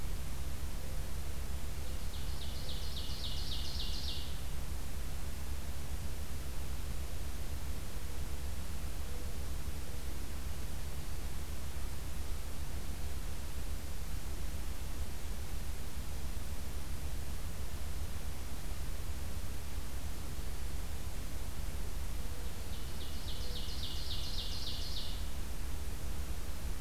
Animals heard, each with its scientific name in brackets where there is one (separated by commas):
Ovenbird (Seiurus aurocapilla), Mourning Dove (Zenaida macroura)